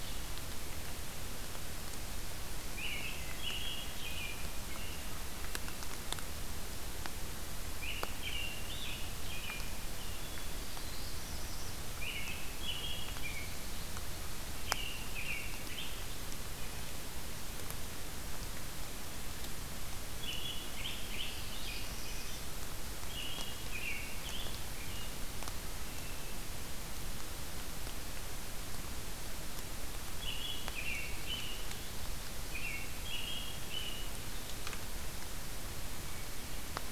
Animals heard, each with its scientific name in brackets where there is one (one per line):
Hermit Thrush (Catharus guttatus)
American Robin (Turdus migratorius)
Black-throated Blue Warbler (Setophaga caerulescens)
Pine Warbler (Setophaga pinus)